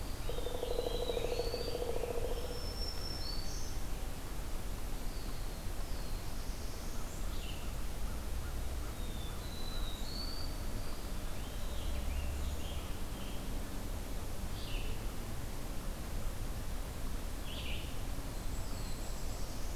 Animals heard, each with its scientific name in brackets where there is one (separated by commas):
Brown Creeper (Certhia americana), Pileated Woodpecker (Dryocopus pileatus), Black-throated Blue Warbler (Setophaga caerulescens), Black-throated Green Warbler (Setophaga virens), Red-eyed Vireo (Vireo olivaceus), American Robin (Turdus migratorius)